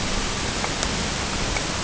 {"label": "ambient", "recorder": "HydroMoth"}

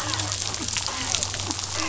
{"label": "biophony, dolphin", "recorder": "SoundTrap 500"}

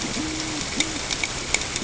{"label": "ambient", "recorder": "HydroMoth"}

